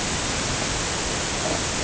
{"label": "ambient", "recorder": "HydroMoth"}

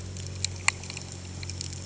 {"label": "anthrophony, boat engine", "recorder": "HydroMoth"}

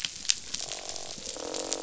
{"label": "biophony, croak", "recorder": "SoundTrap 500"}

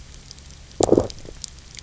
{"label": "biophony, low growl", "recorder": "SoundTrap 300"}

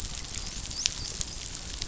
{"label": "biophony, dolphin", "recorder": "SoundTrap 500"}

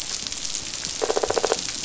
{"label": "biophony", "recorder": "SoundTrap 500"}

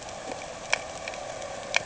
{"label": "anthrophony, boat engine", "recorder": "HydroMoth"}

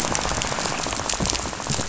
{"label": "biophony, rattle", "recorder": "SoundTrap 500"}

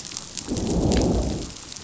{"label": "biophony, growl", "recorder": "SoundTrap 500"}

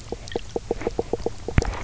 {"label": "biophony, knock croak", "recorder": "SoundTrap 300"}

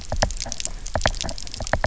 {"label": "biophony, knock", "recorder": "SoundTrap 300"}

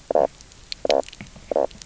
{"label": "biophony, knock croak", "recorder": "SoundTrap 300"}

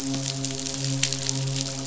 {"label": "biophony, midshipman", "recorder": "SoundTrap 500"}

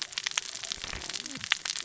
{"label": "biophony, cascading saw", "recorder": "SoundTrap 600 or HydroMoth"}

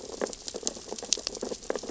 {"label": "biophony, sea urchins (Echinidae)", "recorder": "SoundTrap 600 or HydroMoth"}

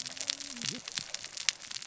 {"label": "biophony, cascading saw", "recorder": "SoundTrap 600 or HydroMoth"}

